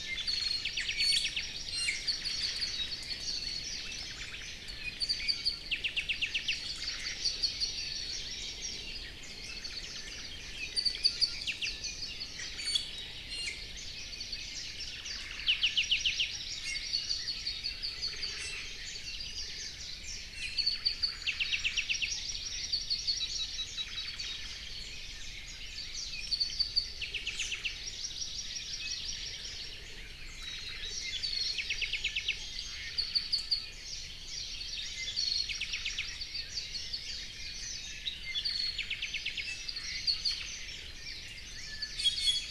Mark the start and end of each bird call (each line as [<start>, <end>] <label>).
[0.00, 0.60] Omao (Myadestes obscurus)
[0.20, 1.40] Apapane (Himatione sanguinea)
[0.90, 2.10] Iiwi (Drepanis coccinea)
[1.70, 3.00] Omao (Myadestes obscurus)
[2.00, 3.70] Apapane (Himatione sanguinea)
[4.00, 4.50] Omao (Myadestes obscurus)
[4.60, 6.60] Apapane (Himatione sanguinea)
[6.70, 7.20] Omao (Myadestes obscurus)
[7.10, 8.60] Apapane (Himatione sanguinea)
[9.10, 10.40] Warbling White-eye (Zosterops japonicus)
[9.50, 10.40] Omao (Myadestes obscurus)
[10.70, 12.30] Apapane (Himatione sanguinea)
[12.30, 12.90] Omao (Myadestes obscurus)
[12.50, 13.70] Iiwi (Drepanis coccinea)
[14.80, 15.70] Omao (Myadestes obscurus)
[15.40, 18.40] Apapane (Himatione sanguinea)
[16.60, 17.00] Iiwi (Drepanis coccinea)
[18.00, 18.80] Omao (Myadestes obscurus)
[18.30, 18.80] Iiwi (Drepanis coccinea)
[20.30, 20.80] Iiwi (Drepanis coccinea)
[20.70, 21.40] Omao (Myadestes obscurus)
[21.20, 24.40] Apapane (Himatione sanguinea)
[21.40, 23.60] Hawaii Amakihi (Chlorodrepanis virens)
[23.60, 24.70] Omao (Myadestes obscurus)
[24.80, 26.40] Red-billed Leiothrix (Leiothrix lutea)
[26.10, 27.80] Apapane (Himatione sanguinea)
[27.20, 27.70] Chinese Hwamei (Garrulax canorus)
[27.70, 29.80] Hawaii Amakihi (Chlorodrepanis virens)
[30.30, 31.00] Omao (Myadestes obscurus)
[30.70, 32.40] Apapane (Himatione sanguinea)
[32.60, 33.00] Omao (Myadestes obscurus)
[32.90, 33.70] Apapane (Himatione sanguinea)
[34.90, 36.10] Apapane (Himatione sanguinea)
[37.80, 40.50] Apapane (Himatione sanguinea)
[39.60, 41.00] Omao (Myadestes obscurus)
[40.90, 41.80] Red-billed Leiothrix (Leiothrix lutea)
[41.60, 42.50] Iiwi (Drepanis coccinea)